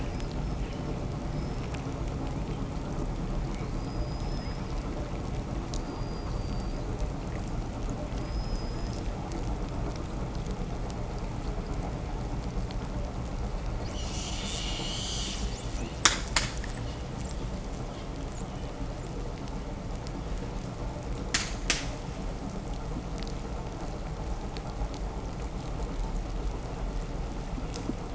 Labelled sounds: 16.9	19.4	killer whale, southern resident, 6.2 to 8.0 kHz

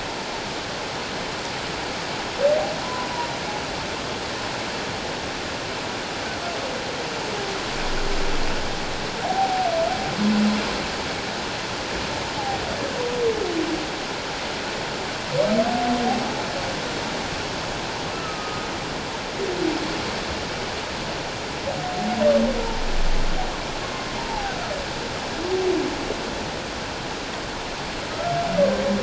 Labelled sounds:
2.8	3.1	humpback whale, 0.94 to 1.1 kHz
9.2	9.7	humpback whale, 0.78 to 0.84 kHz
18.1	18.7	humpback whale, 1.2 to 1.4 kHz
24.2	24.5	humpback whale, 0.78 to 0.97 kHz

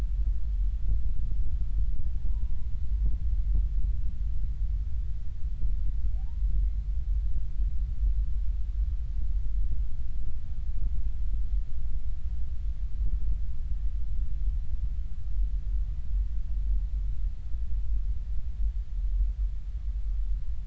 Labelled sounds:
2.3	2.6	humpback whale, 0.90 to 1.0 kHz

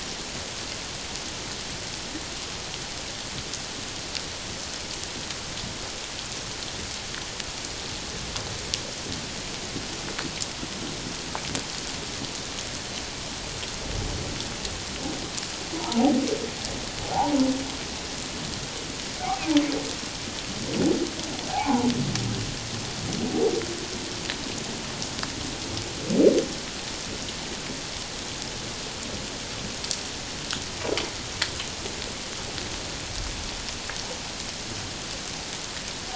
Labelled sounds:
15.7	16.1	humpback whale, 0.78 to 1.0 kHz
17.1	17.4	humpback whale, 0.78 to 1.0 kHz
21.5	21.9	humpback whale, 0.78 to 1.2 kHz

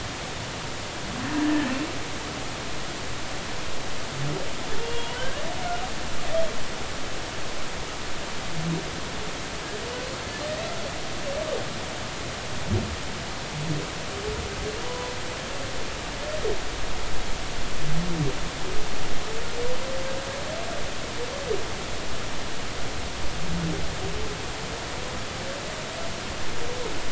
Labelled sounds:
1.4	1.7	humpback whale, 1.7 to 1.9 kHz
4.8	5.5	humpback whale, 1.4 to 3.4 kHz
14.8	15.1	humpback whale, 0.86 to 1.1 kHz

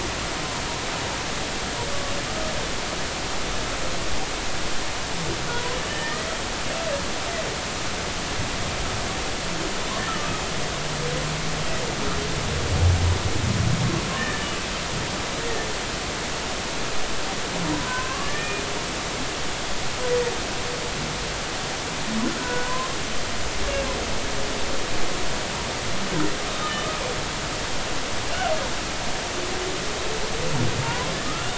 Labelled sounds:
5.5	6.3	humpback whale, 0.93 to 3.1 kHz
10.1	10.3	humpback whale, 1.2 to 1.4 kHz
14.2	14.5	humpback whale, 1.7 to 1.9 kHz
17.7	18.6	humpback whale, 0.90 to 2.5 kHz
22.4	22.7	humpback whale, 0.93 to 1.6 kHz
30.8	31.5	humpback whale, 0.86 to 1.5 kHz

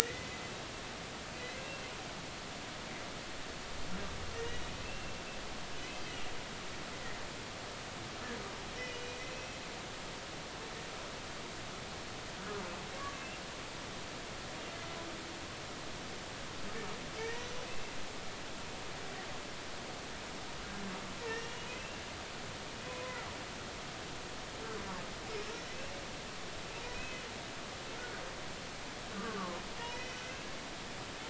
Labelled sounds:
1.0	1.5	humpback whale, 1.8 to 2.1 kHz
4.3	5.2	humpback whale, 1.8 to 2.8 kHz
8.8	9.6	humpback whale, 2.4 to 5.8 kHz
13.0	13.4	humpback whale, 1.1 to 2.8 kHz
17.2	17.5	humpback whale, 1.7 to 2.0 kHz
21.2	22.0	humpback whale, 1.7 to 5.7 kHz
22.8	23.2	humpback whale, 0.90 to 2.6 kHz
26.9	28.2	humpback whale, 1.4 to 2.6 kHz
29.2	30.5	humpback whale, 0.96 to 2.7 kHz

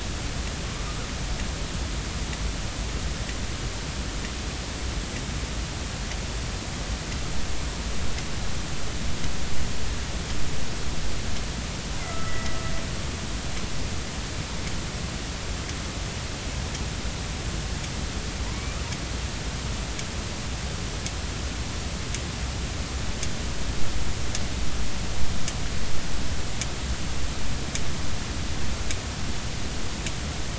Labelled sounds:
12.0	12.6	killer whale, northern resident, A clan, AB subclan, B01 pod, call N01ii, 1.2 to 2.0 kHz
18.5	18.8	killer whale, northern resident, A clan, AB subclan, call N16, 2.1 to 2.4 kHz

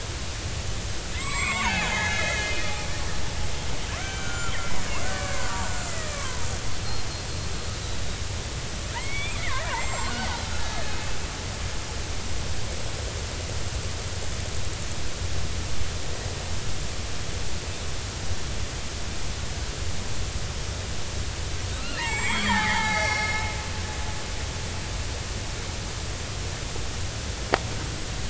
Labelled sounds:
1.1	2.5	killer whale, Bigg's (transient), 0.80 to 7.7 kHz
4.0	6.5	killer whale, Bigg's (transient), 0.90 to 3.4 kHz
8.9	11.0	killer whale, Bigg's (transient), 0.80 to 7.9 kHz
21.8	23.4	killer whale, Bigg's (transient), 0.80 to 7.7 kHz

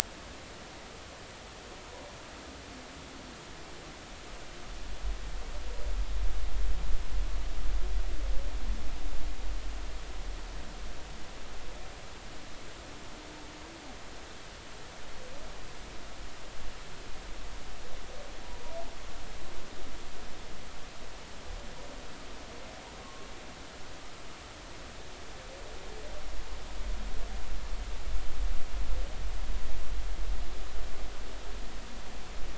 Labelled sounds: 23.0	23.3	humpback whale, 1.0 to 1.2 kHz

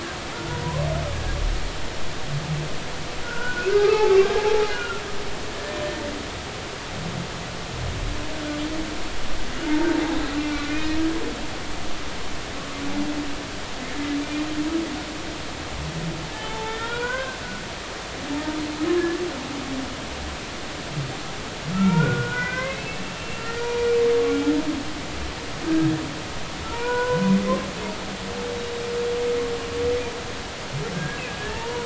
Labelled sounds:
3.2	5.0	humpback whale, 0.80 to 1.7 kHz
10.4	11.0	humpback whale, 1.7 to 2.6 kHz
14.2	14.5	humpback whale, 2.3 to 2.5 kHz
16.3	17.4	humpback whale, 0.83 to 3.5 kHz
19.0	19.2	humpback whale, 1.6 to 1.8 kHz
21.7	23.9	humpback whale, 0.90 to 5.8 kHz
25.6	25.9	humpback whale, 1.5 to 1.7 kHz
26.7	27.3	humpback whale, 0.86 to 1.6 kHz
30.9	31.8	humpback whale, 0.83 to 1.8 kHz

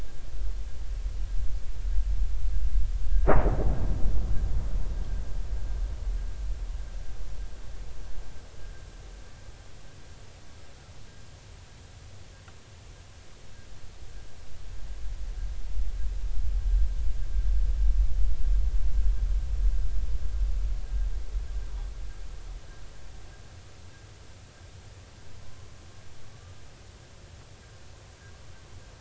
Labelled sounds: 25.5	25.7	humpback whale, 0.99 to 1.2 kHz

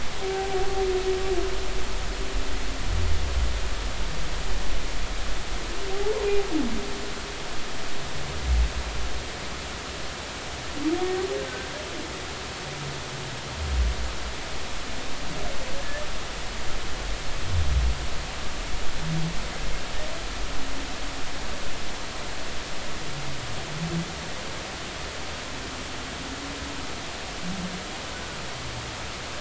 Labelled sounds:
0.2	0.6	humpback whale, 0.80 to 0.83 kHz
5.9	6.3	humpback whale, 0.80 to 1.1 kHz
15.8	16.0	humpback whale, 1.6 to 1.8 kHz

